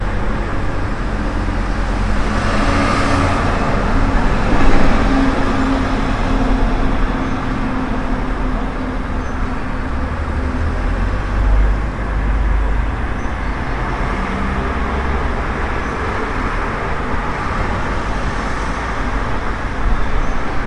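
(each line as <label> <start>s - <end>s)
Cars driving by. 1.5s - 9.5s
A car is approaching. 11.2s - 20.7s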